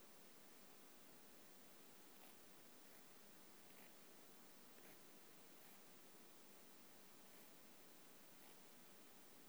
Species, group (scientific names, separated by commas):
Pseudosubria bispinosa, Orthoptera